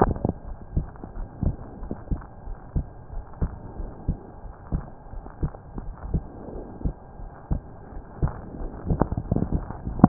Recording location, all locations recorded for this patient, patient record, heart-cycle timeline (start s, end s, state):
pulmonary valve (PV)
aortic valve (AV)+pulmonary valve (PV)+tricuspid valve (TV)+mitral valve (MV)
#Age: Child
#Sex: Male
#Height: 136.0 cm
#Weight: 26.3 kg
#Pregnancy status: False
#Murmur: Absent
#Murmur locations: nan
#Most audible location: nan
#Systolic murmur timing: nan
#Systolic murmur shape: nan
#Systolic murmur grading: nan
#Systolic murmur pitch: nan
#Systolic murmur quality: nan
#Diastolic murmur timing: nan
#Diastolic murmur shape: nan
#Diastolic murmur grading: nan
#Diastolic murmur pitch: nan
#Diastolic murmur quality: nan
#Outcome: Normal
#Campaign: 2015 screening campaign
0.00	1.15	unannotated
1.15	1.28	S1
1.28	1.42	systole
1.42	1.56	S2
1.56	1.79	diastole
1.79	1.92	S1
1.92	2.08	systole
2.08	2.22	S2
2.22	2.46	diastole
2.46	2.56	S1
2.56	2.72	systole
2.72	2.86	S2
2.86	3.13	diastole
3.13	3.24	S1
3.24	3.38	systole
3.38	3.52	S2
3.52	3.76	diastole
3.76	3.90	S1
3.90	4.06	systole
4.06	4.18	S2
4.18	4.42	diastole
4.42	4.54	S1
4.54	4.72	systole
4.72	4.84	S2
4.84	5.13	diastole
5.13	5.24	S1
5.24	5.40	systole
5.40	5.54	S2
5.54	5.82	diastole
5.82	5.94	S1
5.94	6.10	systole
6.10	6.24	S2
6.24	6.53	diastole
6.53	6.66	S1
6.66	6.82	systole
6.82	6.94	S2
6.94	7.17	diastole
7.17	7.30	S1
7.30	7.50	systole
7.50	7.64	S2
7.64	7.91	diastole
7.91	8.02	S1
8.02	8.20	systole
8.20	8.32	S2
8.32	8.58	diastole
8.58	8.72	S1
8.72	10.08	unannotated